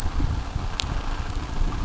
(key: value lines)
label: biophony
recorder: SoundTrap 600